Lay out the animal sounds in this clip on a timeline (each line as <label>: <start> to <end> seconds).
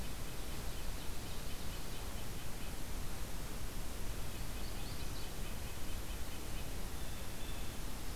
Red-breasted Nuthatch (Sitta canadensis): 0.1 to 2.8 seconds
Magnolia Warbler (Setophaga magnolia): 4.1 to 5.4 seconds
Red-breasted Nuthatch (Sitta canadensis): 4.1 to 6.7 seconds
Blue Jay (Cyanocitta cristata): 6.8 to 8.1 seconds